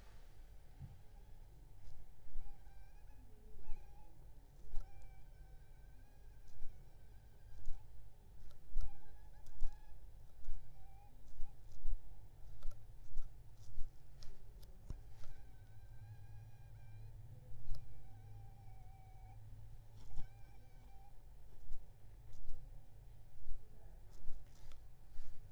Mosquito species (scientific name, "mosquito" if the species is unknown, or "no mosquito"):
Aedes aegypti